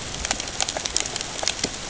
{"label": "ambient", "recorder": "HydroMoth"}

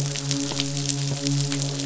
{"label": "biophony, midshipman", "recorder": "SoundTrap 500"}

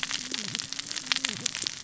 {"label": "biophony, cascading saw", "recorder": "SoundTrap 600 or HydroMoth"}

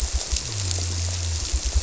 {"label": "biophony", "recorder": "SoundTrap 300"}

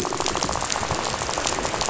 {"label": "biophony, rattle", "recorder": "SoundTrap 500"}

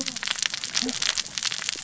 {"label": "biophony, cascading saw", "recorder": "SoundTrap 600 or HydroMoth"}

